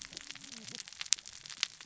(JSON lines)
{"label": "biophony, cascading saw", "recorder": "SoundTrap 600 or HydroMoth"}